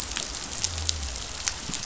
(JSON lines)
{"label": "biophony", "recorder": "SoundTrap 500"}